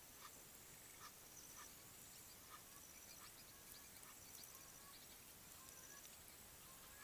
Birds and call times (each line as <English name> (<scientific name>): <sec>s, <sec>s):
Egyptian Goose (Alopochen aegyptiaca): 1.0s
Quailfinch (Ortygospiza atricollis): 2.3s
Gray Crowned-Crane (Balearica regulorum): 5.8s